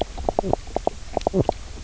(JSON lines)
{"label": "biophony, knock croak", "recorder": "SoundTrap 300"}